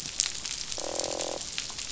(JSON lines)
{"label": "biophony, croak", "recorder": "SoundTrap 500"}